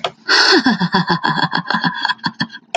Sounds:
Laughter